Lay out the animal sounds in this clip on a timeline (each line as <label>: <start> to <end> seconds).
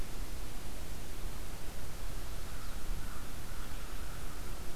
American Crow (Corvus brachyrhynchos): 2.6 to 4.8 seconds